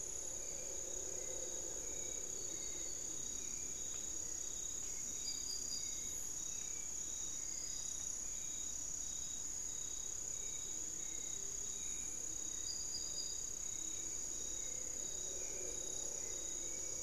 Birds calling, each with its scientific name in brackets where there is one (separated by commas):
unidentified bird, Hauxwell's Thrush (Turdus hauxwelli)